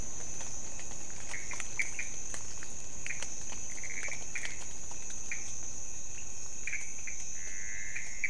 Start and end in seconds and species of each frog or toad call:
0.0	8.2	Pithecopus azureus
6.2	6.3	Leptodactylus podicipinus

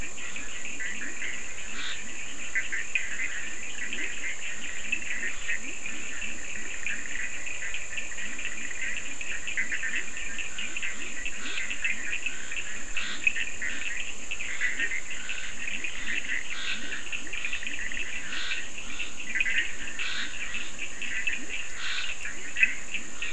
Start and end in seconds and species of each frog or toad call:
0.0	23.3	Boana bischoffi
0.0	23.3	Leptodactylus latrans
0.0	23.3	Sphaenorhynchus surdus
1.6	2.2	Scinax perereca
11.3	23.3	Scinax perereca

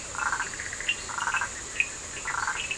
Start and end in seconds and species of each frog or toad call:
0.0	2.7	Boana prasina
0.0	2.7	Sphaenorhynchus surdus
0.3	2.7	Boana bischoffi

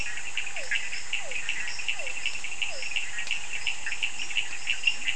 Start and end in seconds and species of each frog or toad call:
0.0	3.3	Physalaemus cuvieri
3.6	5.1	Boana bischoffi
4.0	5.1	Leptodactylus latrans

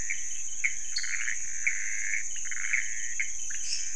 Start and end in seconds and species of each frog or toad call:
0.0	3.9	Pithecopus azureus
0.9	1.3	Dendropsophus nanus
3.6	3.9	Dendropsophus minutus

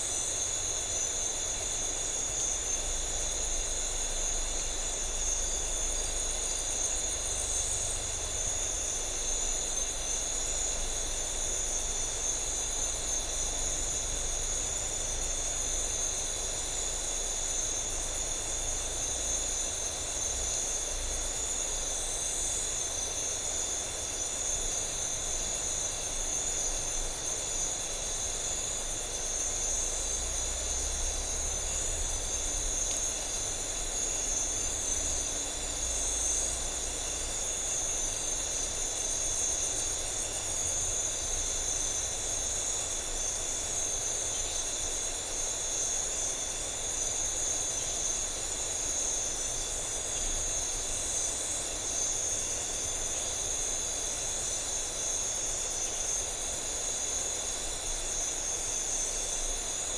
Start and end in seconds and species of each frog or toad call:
none

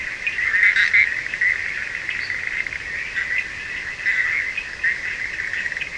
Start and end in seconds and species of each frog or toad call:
0.0	1.2	Boana leptolineata
0.0	5.9	Boana bischoffi
0.0	5.9	Sphaenorhynchus surdus

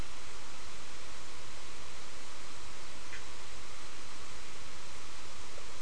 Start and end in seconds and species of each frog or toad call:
3.1	3.3	Boana bischoffi

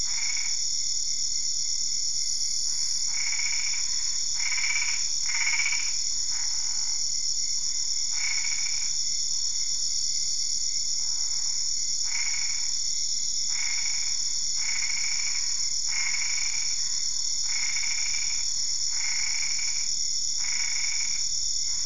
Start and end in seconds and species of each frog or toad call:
0.0	0.6	Boana albopunctata
3.1	7.0	Boana albopunctata
8.1	9.0	Boana albopunctata
12.0	21.8	Boana albopunctata

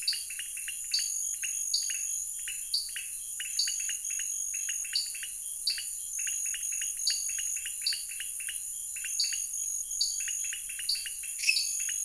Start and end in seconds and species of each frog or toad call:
0.0	12.0	Dendropsophus nanus
0.0	12.0	Leptodactylus podicipinus
11.4	11.8	Dendropsophus minutus

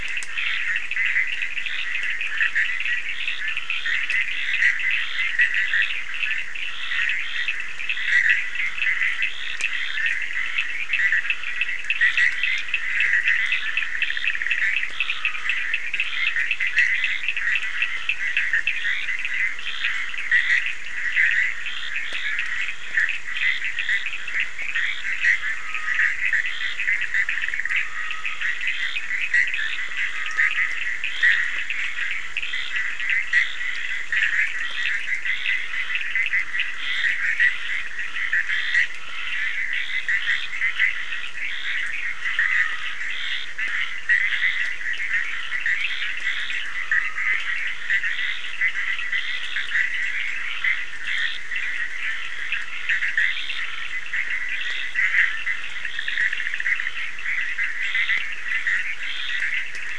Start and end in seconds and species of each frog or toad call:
0.0	59.5	Scinax perereca
0.0	59.5	Sphaenorhynchus surdus
0.0	59.9	Boana bischoffi
14.8	15.8	Dendropsophus nahdereri
25.3	47.6	Dendropsophus nahdereri

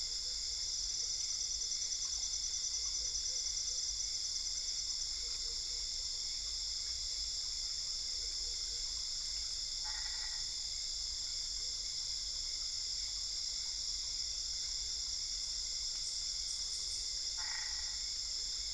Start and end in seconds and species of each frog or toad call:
9.5	11.0	Boana albopunctata
17.4	18.4	Boana albopunctata

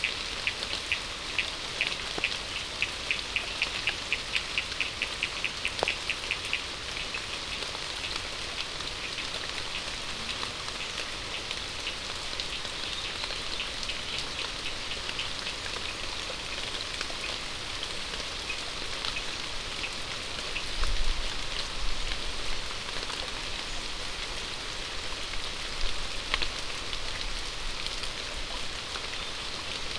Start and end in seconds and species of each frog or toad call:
0.0	6.6	Sphaenorhynchus surdus

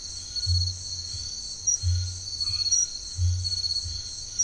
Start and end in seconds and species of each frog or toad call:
0.0	4.4	Scinax alter
2.4	2.8	Boana albomarginata

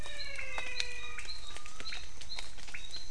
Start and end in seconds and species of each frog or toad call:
0.0	1.9	Physalaemus albonotatus
0.0	3.1	Leptodactylus podicipinus

